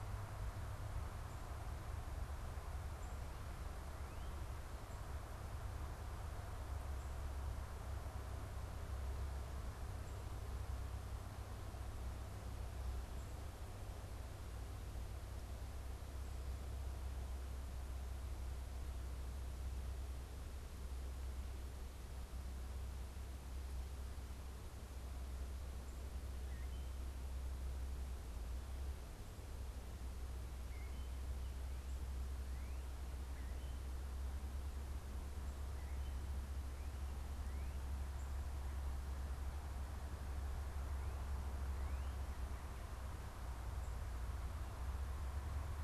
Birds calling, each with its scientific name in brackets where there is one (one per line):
unidentified bird
Northern Cardinal (Cardinalis cardinalis)